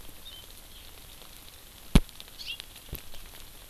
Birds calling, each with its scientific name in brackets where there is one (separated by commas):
Hawaii Amakihi (Chlorodrepanis virens)